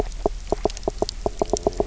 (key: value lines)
label: biophony, knock croak
recorder: SoundTrap 300